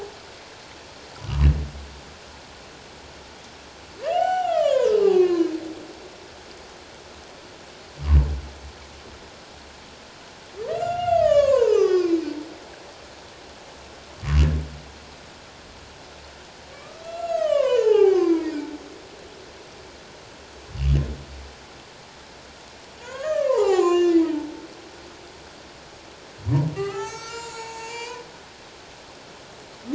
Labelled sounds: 4.0	5.5	humpback whale, 0.78 to 6.0 kHz
10.7	12.2	humpback whale, 0.78 to 7.1 kHz
16.7	18.6	humpback whale, 0.78 to 7.0 kHz
23.0	24.6	humpback whale, 0.78 to 7.6 kHz
26.4	28.2	humpback whale, 0.78 to 7.8 kHz

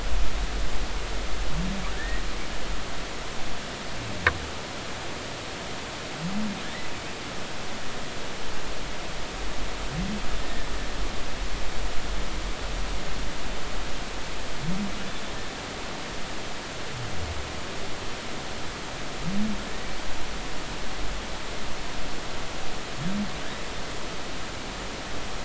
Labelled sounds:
6.6	6.9	humpback whale, 1.6 to 2.0 kHz

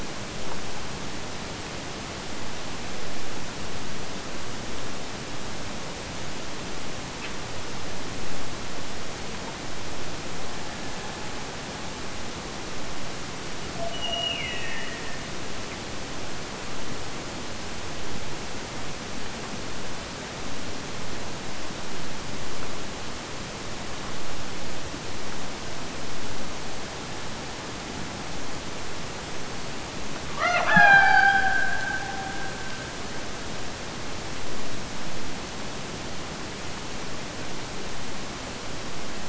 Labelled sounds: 13.7	15.6	killer whale, Bigg's (transient), Gulf of Alaska transient, 0.55 to 3.1 kHz
30.3	33.3	killer whale, Bigg's (transient), Gulf of Alaska transient, 0.26 to 6.3 kHz

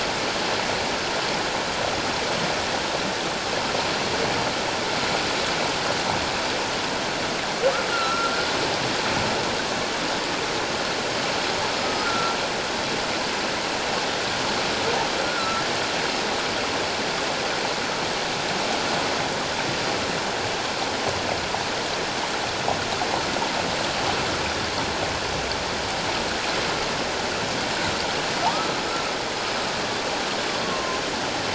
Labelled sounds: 7.9	8.3	humpback whale, 1.3 to 1.5 kHz
12.0	12.4	humpback whale, 1.3 to 1.4 kHz
15.3	15.6	humpback whale, 1.2 to 1.5 kHz
30.6	31.0	humpback whale, 0.97 to 1.2 kHz

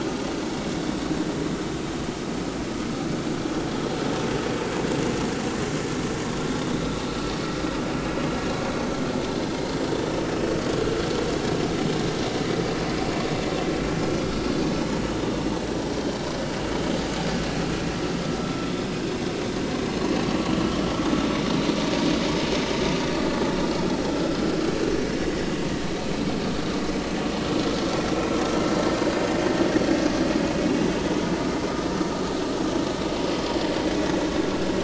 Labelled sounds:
24.1	24.4	vessel noise, 1.3 to 1.4 kHz

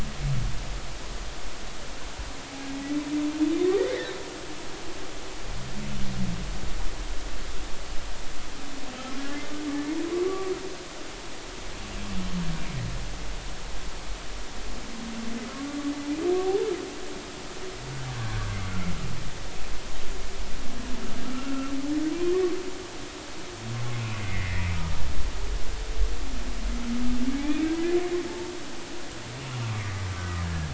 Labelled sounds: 3.8	4.2	humpback whale, 1.6 to 2.2 kHz
10.2	10.5	humpback whale, 1.1 to 1.2 kHz
21.3	21.7	humpback whale, 1.3 to 2.8 kHz
24.2	24.7	humpback whale, 1.8 to 2.2 kHz
27.4	27.6	humpback whale, 2.2 to 2.5 kHz
30.4	30.7	humpback whale, 1.6 to 1.8 kHz

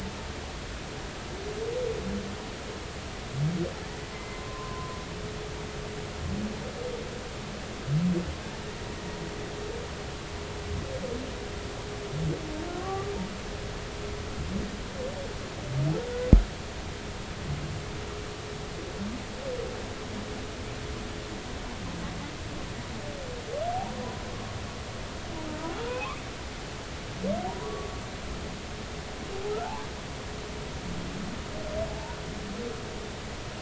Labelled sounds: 4.1	5.0	humpback whale, 0.93 to 2.1 kHz
12.8	13.1	humpback whale, 1.1 to 1.2 kHz
25.9	26.2	humpback whale, 2.4 to 2.7 kHz
27.5	27.9	humpback whale, 0.90 to 1.2 kHz
31.9	32.2	humpback whale, 0.80 to 1.0 kHz

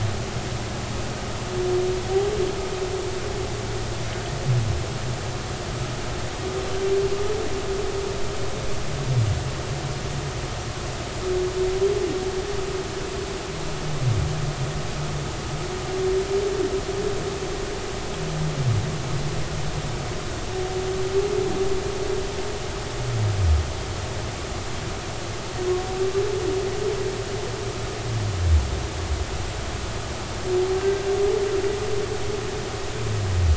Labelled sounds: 30.8	31.1	humpback whale, 1.5 to 1.6 kHz

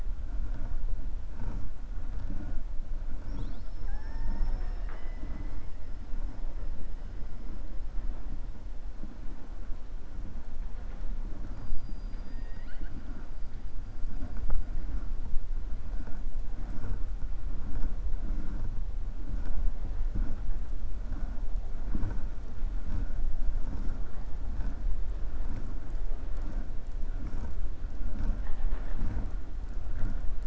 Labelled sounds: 11.5	13.0	killer whale, 1.4 to 4.9 kHz

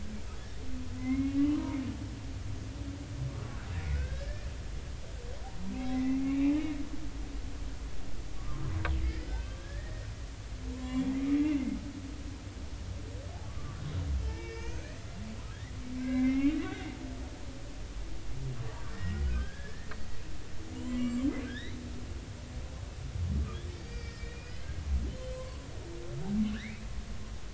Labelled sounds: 1.0	1.8	humpback whale, 0.90 to 2.2 kHz
3.9	4.5	humpback whale, 1.4 to 1.9 kHz
5.9	6.6	humpback whale, 1.9 to 2.8 kHz
8.4	10.1	humpback whale, 1.0 to 5.2 kHz
10.7	11.4	humpback whale, 0.90 to 3.5 kHz
13.5	14.9	humpback whale, 1.0 to 6.4 kHz
16.0	16.6	humpback whale, 1.5 to 2.8 kHz
18.6	19.9	humpback whale, 1.0 to 3.3 kHz
20.8	21.8	humpback whale, 1.5 to 7.6 kHz
23.8	24.5	humpback whale, 1.8 to 5.3 kHz
25.3	25.6	humpback whale, 0.96 to 1.2 kHz
26.5	26.8	humpback whale, 1.4 to 2.7 kHz

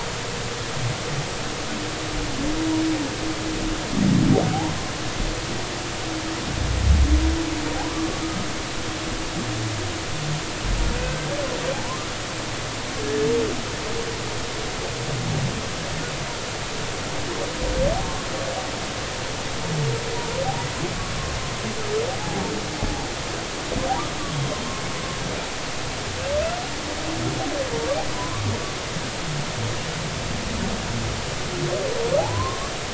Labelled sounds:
7.8	8.1	humpback whale, 0.80 to 1.2 kHz
10.9	12.1	humpback whale, 0.80 to 1.6 kHz
18.0	18.3	humpback whale, 1.0 to 1.2 kHz
24.2	24.5	humpback whale, 1.0 to 1.2 kHz
28.1	28.4	humpback whale, 0.93 to 1.2 kHz
32.2	32.7	humpback whale, 0.80 to 1.2 kHz

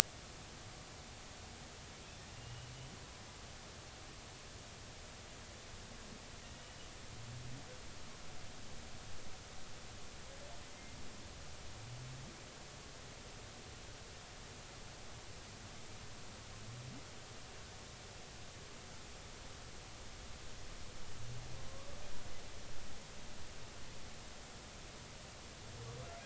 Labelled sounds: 2.3	2.7	humpback whale, 2.7 to 3.0 kHz

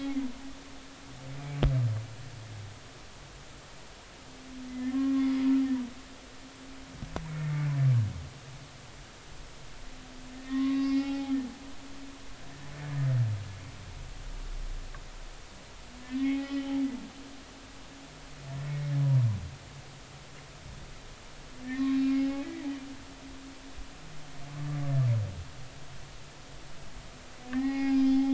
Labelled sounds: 4.7	5.5	humpback whale, 1.0 to 3.5 kHz
7.3	7.7	humpback whale, 2.0 to 2.3 kHz
10.3	11.3	humpback whale, 0.80 to 5.3 kHz
16.0	16.8	humpback whale, 0.80 to 3.1 kHz
21.6	22.6	humpback whale, 0.80 to 2.8 kHz
27.5	28.3	humpback whale, 0.80 to 5.2 kHz

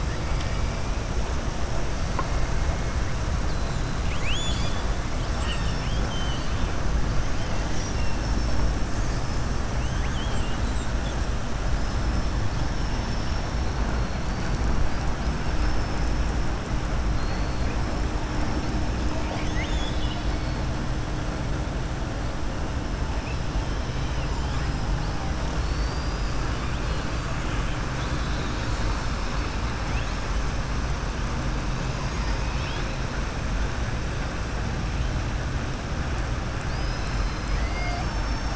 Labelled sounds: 4.0	4.9	killer whale, southern resident, 2.0 to 7.6 kHz
5.3	6.6	killer whale, southern resident, 1.3 to 6.2 kHz
9.7	10.9	killer whale, southern resident, 1.6 to 4.1 kHz
12.8	13.5	killer whale, southern resident, 4.5 to 6.3 kHz
19.1	20.6	killer whale, southern resident, 0.70 to 7.2 kHz
23.9	24.3	killer whale, southern resident, 2.0 to 4.0 kHz
25.5	26.4	killer whale, southern resident, 4.3 to 5.4 kHz
31.8	32.9	killer whale, southern resident, 2.4 to 6.7 kHz

